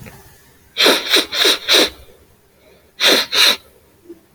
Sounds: Sniff